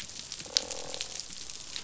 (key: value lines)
label: biophony, croak
recorder: SoundTrap 500